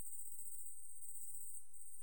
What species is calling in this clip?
Tettigonia viridissima